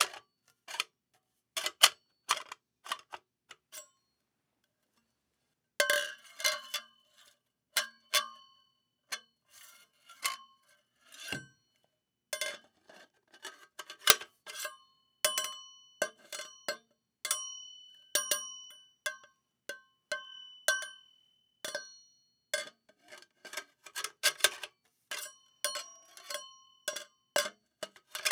What is the composition of the object that is being struck?
metal